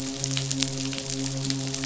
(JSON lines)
{"label": "biophony, midshipman", "recorder": "SoundTrap 500"}